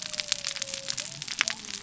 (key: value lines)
label: biophony
recorder: SoundTrap 300